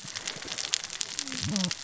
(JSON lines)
{"label": "biophony, cascading saw", "recorder": "SoundTrap 600 or HydroMoth"}